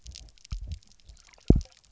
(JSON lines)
{"label": "biophony, double pulse", "recorder": "SoundTrap 300"}